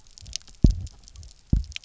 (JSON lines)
{"label": "biophony, double pulse", "recorder": "SoundTrap 300"}